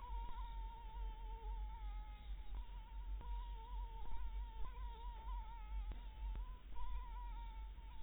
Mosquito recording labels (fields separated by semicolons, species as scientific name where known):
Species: Anopheles maculatus; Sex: female; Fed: blood-fed; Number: one; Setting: cup